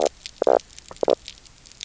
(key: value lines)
label: biophony, knock croak
recorder: SoundTrap 300